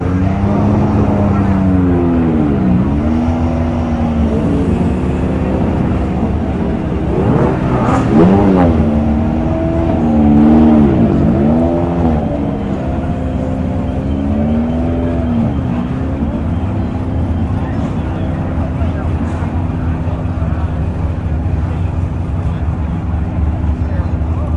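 0.0s A loud sports car drives by. 24.6s
0.0s People are talking in the background. 24.6s

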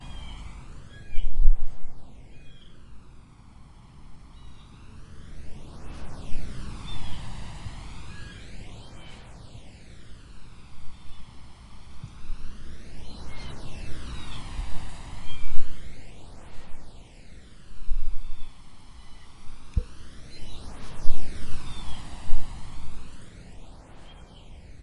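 0.0s A strong wind blends with bird calls. 24.8s
0.0s A bird is chirping. 3.0s
8.2s A bird is chirping. 11.5s
13.7s A bird is chirping. 14.8s
18.5s A bird is chirping. 23.0s

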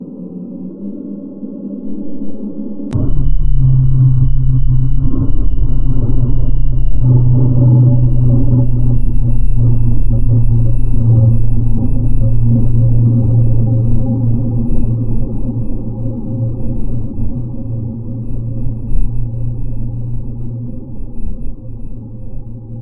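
0.0s The sound of wind or air hitting the microphone. 3.0s
3.1s High wind is blowing. 22.8s

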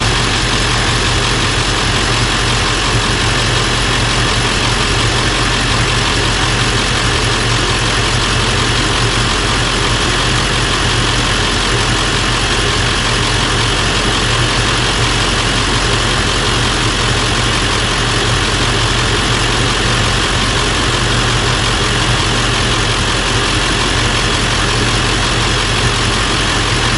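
0.0s Diesel truck engine running loudly. 27.0s

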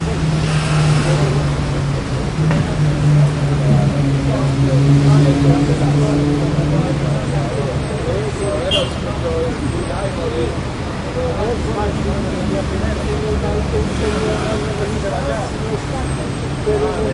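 0.0s Cars and buses pass a bus stop. 17.1s
0.0s People chatting indistinctly on a street. 17.1s
0.2s A car is driving close by on a city street. 1.4s
6.8s A car brakes with screeching tires on a city street. 10.5s
8.7s A car horn sounds on a city street. 8.9s
13.9s A car drives by on a city street. 14.6s
15.6s A car brakes with screeching tires on a city street. 17.1s

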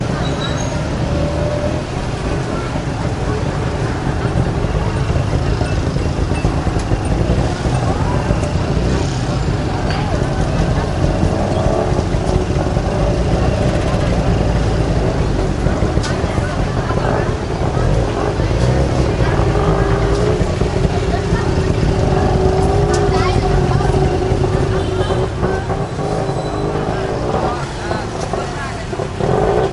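0.0s Ambient street noise with vehicles passing by and people talking in the background. 29.7s

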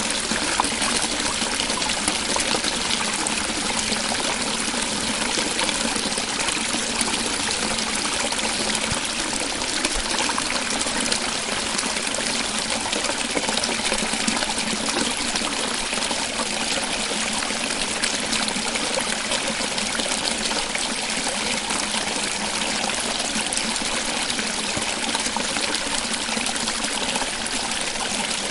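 0.2s Water flowing constantly and naturally in a river. 28.4s

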